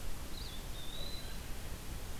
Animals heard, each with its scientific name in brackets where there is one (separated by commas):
Eastern Wood-Pewee (Contopus virens)